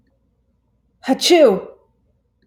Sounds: Sneeze